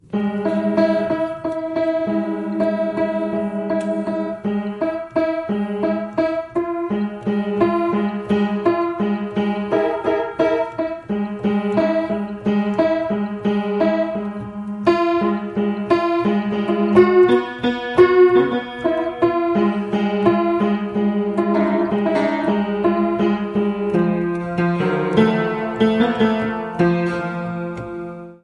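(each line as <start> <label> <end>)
0.1 An upright piano plays dissonant, loosely structured melodies. 28.4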